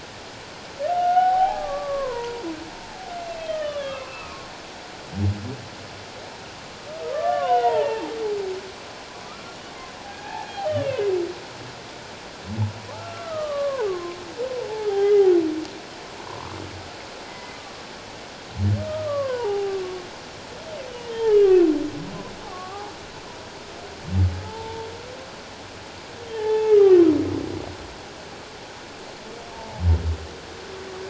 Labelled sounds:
0.9	2.4	humpback whale, 0.78 to 1.5 kHz
3.5	4.4	humpback whale, 1.0 to 3.7 kHz
7.0	8.1	humpback whale, 0.78 to 3.1 kHz
9.2	9.6	humpback whale, 1.1 to 1.4 kHz
10.1	11.1	humpback whale, 0.78 to 3.3 kHz
12.9	14.2	humpback whale, 0.81 to 1.8 kHz
14.7	15.3	humpback whale, 0.78 to 3.4 kHz
16.3	16.6	humpback whale, 0.91 to 1.2 kHz
17.2	17.6	humpback whale, 1.9 to 2.1 kHz
18.9	19.8	humpback whale, 0.78 to 1.3 kHz
21.1	21.7	humpback whale, 1.4 to 1.9 kHz
22.5	22.9	humpback whale, 0.78 to 1.3 kHz
24.4	24.9	humpback whale, 0.81 to 0.97 kHz
26.3	27.0	humpback whale, 0.81 to 2.1 kHz
29.5	29.8	humpback whale, 0.78 to 0.97 kHz

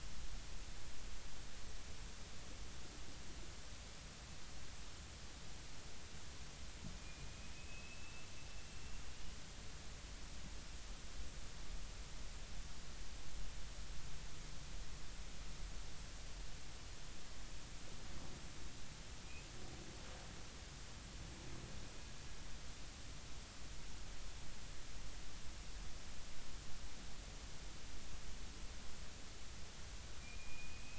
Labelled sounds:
7.0	8.3	killer whale, Bigg's (transient), 2.4 to 2.7 kHz
30.2	30.9	killer whale, Bigg's (transient), 2.3 to 2.6 kHz

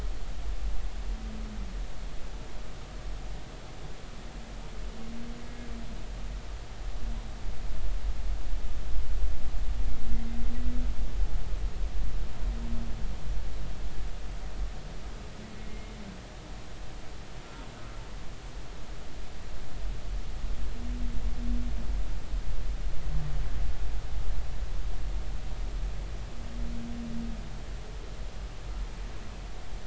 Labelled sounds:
15.6	15.9	humpback whale, 2.1 to 2.2 kHz

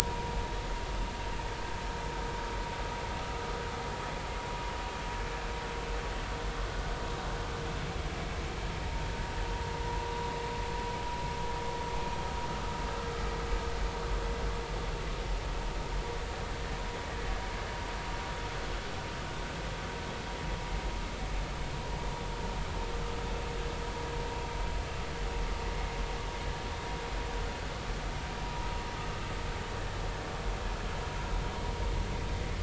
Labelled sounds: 0.0	0.3	vessel noise, 0.93 to 1.0 kHz
8.8	10.2	vessel noise, 0.83 to 1.0 kHz

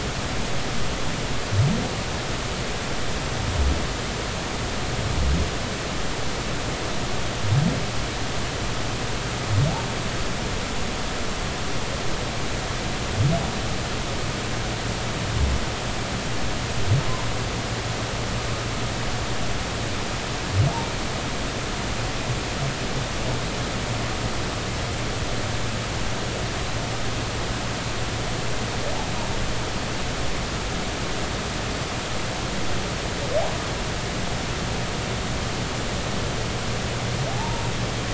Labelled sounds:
37.3	37.6	humpback whale, 0.80 to 0.99 kHz

